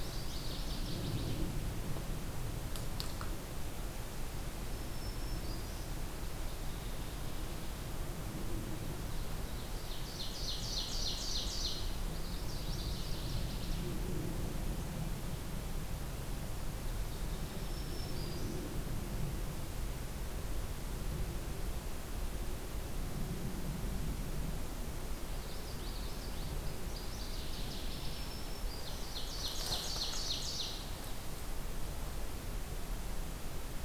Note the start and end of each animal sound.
0.0s-1.5s: Northern Waterthrush (Parkesia noveboracensis)
4.5s-5.9s: Black-throated Green Warbler (Setophaga virens)
9.7s-11.9s: Ovenbird (Seiurus aurocapilla)
12.1s-13.9s: Northern Waterthrush (Parkesia noveboracensis)
17.5s-18.7s: Black-throated Green Warbler (Setophaga virens)
25.2s-26.5s: Common Yellowthroat (Geothlypis trichas)
26.6s-28.2s: Northern Waterthrush (Parkesia noveboracensis)
27.9s-29.2s: Black-throated Green Warbler (Setophaga virens)
28.9s-30.8s: Ovenbird (Seiurus aurocapilla)

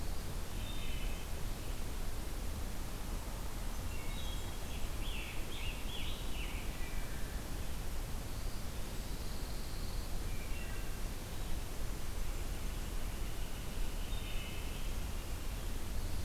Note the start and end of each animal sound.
0.4s-1.7s: Wood Thrush (Hylocichla mustelina)
3.6s-5.1s: Blackburnian Warbler (Setophaga fusca)
3.7s-5.1s: Wood Thrush (Hylocichla mustelina)
4.9s-7.1s: Scarlet Tanager (Piranga olivacea)
6.6s-7.4s: Wood Thrush (Hylocichla mustelina)
8.7s-10.3s: Pine Warbler (Setophaga pinus)
10.1s-11.3s: Wood Thrush (Hylocichla mustelina)
13.9s-15.4s: Wood Thrush (Hylocichla mustelina)

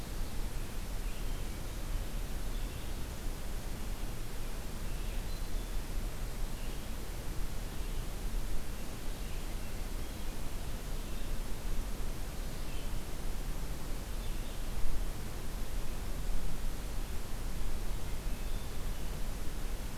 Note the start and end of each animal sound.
0.0s-20.0s: Red-eyed Vireo (Vireo olivaceus)
4.8s-5.7s: Hermit Thrush (Catharus guttatus)
17.9s-18.9s: Hermit Thrush (Catharus guttatus)

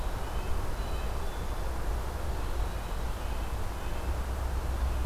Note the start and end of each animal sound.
0.0s-5.1s: Red-breasted Nuthatch (Sitta canadensis)

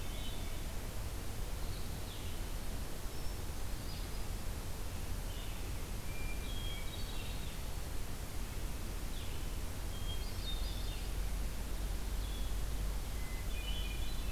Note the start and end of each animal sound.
0.0s-0.6s: Hermit Thrush (Catharus guttatus)
0.0s-14.3s: Blue-headed Vireo (Vireo solitarius)
3.0s-4.5s: Hermit Thrush (Catharus guttatus)
6.0s-7.9s: Hermit Thrush (Catharus guttatus)
9.8s-11.1s: Hermit Thrush (Catharus guttatus)
13.0s-14.3s: Hermit Thrush (Catharus guttatus)

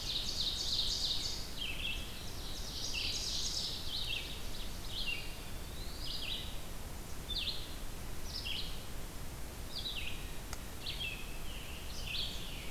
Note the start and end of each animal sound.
0.0s-5.2s: Ovenbird (Seiurus aurocapilla)
0.0s-12.7s: Red-eyed Vireo (Vireo olivaceus)
2.4s-3.6s: Black-throated Green Warbler (Setophaga virens)
4.8s-6.5s: Eastern Wood-Pewee (Contopus virens)
11.1s-12.7s: Scarlet Tanager (Piranga olivacea)

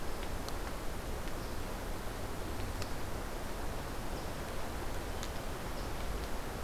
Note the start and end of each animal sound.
0.0s-6.6s: unidentified call

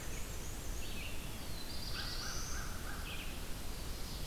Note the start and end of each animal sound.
0.0s-0.9s: Black-and-white Warbler (Mniotilta varia)
0.0s-4.3s: Red-eyed Vireo (Vireo olivaceus)
1.1s-3.1s: Black-throated Blue Warbler (Setophaga caerulescens)
1.3s-3.5s: American Crow (Corvus brachyrhynchos)
3.6s-4.3s: Ovenbird (Seiurus aurocapilla)

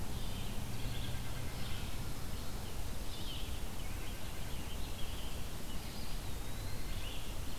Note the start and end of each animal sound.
0.0s-7.6s: Red-eyed Vireo (Vireo olivaceus)
0.5s-2.0s: White-breasted Nuthatch (Sitta carolinensis)
3.7s-6.0s: American Robin (Turdus migratorius)
3.8s-4.7s: White-breasted Nuthatch (Sitta carolinensis)
5.7s-7.3s: Eastern Wood-Pewee (Contopus virens)

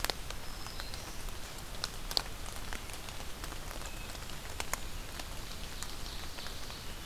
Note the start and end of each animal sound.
0.0s-1.3s: Black-throated Green Warbler (Setophaga virens)
5.0s-6.9s: Ovenbird (Seiurus aurocapilla)

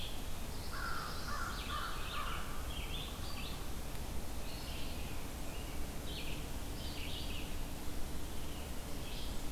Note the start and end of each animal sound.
0.0s-9.5s: Red-eyed Vireo (Vireo olivaceus)
0.5s-1.6s: Black-throated Blue Warbler (Setophaga caerulescens)
0.7s-2.7s: American Crow (Corvus brachyrhynchos)

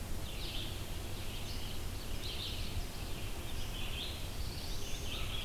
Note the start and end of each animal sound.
0.0s-5.4s: Red-eyed Vireo (Vireo olivaceus)
1.7s-3.2s: Ovenbird (Seiurus aurocapilla)
3.8s-5.2s: Black-throated Blue Warbler (Setophaga caerulescens)

